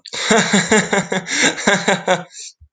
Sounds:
Laughter